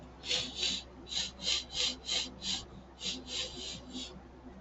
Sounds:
Sniff